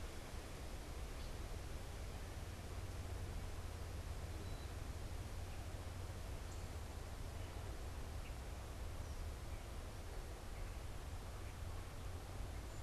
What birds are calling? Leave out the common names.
Quiscalus quiscula